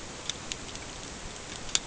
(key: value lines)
label: ambient
recorder: HydroMoth